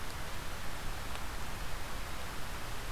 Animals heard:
forest ambience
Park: Marsh-Billings-Rockefeller National Historical Park